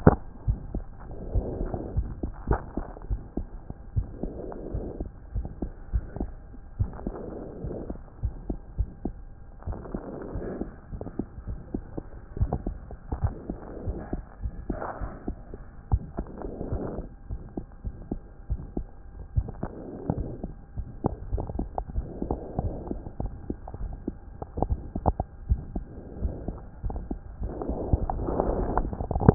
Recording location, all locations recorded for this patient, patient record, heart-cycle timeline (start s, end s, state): aortic valve (AV)
aortic valve (AV)+pulmonary valve (PV)+tricuspid valve (TV)+mitral valve (MV)
#Age: Child
#Sex: Male
#Height: 101.0 cm
#Weight: 16.6 kg
#Pregnancy status: False
#Murmur: Present
#Murmur locations: mitral valve (MV)+pulmonary valve (PV)+tricuspid valve (TV)
#Most audible location: pulmonary valve (PV)
#Systolic murmur timing: Holosystolic
#Systolic murmur shape: Decrescendo
#Systolic murmur grading: I/VI
#Systolic murmur pitch: Low
#Systolic murmur quality: Blowing
#Diastolic murmur timing: nan
#Diastolic murmur shape: nan
#Diastolic murmur grading: nan
#Diastolic murmur pitch: nan
#Diastolic murmur quality: nan
#Outcome: Abnormal
#Campaign: 2014 screening campaign
0.00	1.96	unannotated
1.96	2.08	S1
2.08	2.22	systole
2.22	2.32	S2
2.32	2.48	diastole
2.48	2.60	S1
2.60	2.76	systole
2.76	2.84	S2
2.84	3.10	diastole
3.10	3.20	S1
3.20	3.36	systole
3.36	3.46	S2
3.46	3.96	diastole
3.96	4.08	S1
4.08	4.22	systole
4.22	4.32	S2
4.32	4.72	diastole
4.72	4.86	S1
4.86	5.00	systole
5.00	5.08	S2
5.08	5.34	diastole
5.34	5.48	S1
5.48	5.62	systole
5.62	5.70	S2
5.70	5.92	diastole
5.92	6.04	S1
6.04	6.18	systole
6.18	6.30	S2
6.30	6.78	diastole
6.78	6.90	S1
6.90	7.06	systole
7.06	7.14	S2
7.14	7.64	diastole
7.64	7.76	S1
7.76	7.88	systole
7.88	7.98	S2
7.98	8.22	diastole
8.22	8.34	S1
8.34	8.48	systole
8.48	8.58	S2
8.58	8.78	diastole
8.78	8.88	S1
8.88	9.04	systole
9.04	9.14	S2
9.14	9.66	diastole
9.66	9.78	S1
9.78	9.94	systole
9.94	10.02	S2
10.02	10.34	diastole
10.34	10.46	S1
10.46	10.60	systole
10.60	10.70	S2
10.70	10.92	diastole
10.92	11.02	S1
11.02	11.18	systole
11.18	11.26	S2
11.26	11.46	diastole
11.46	29.34	unannotated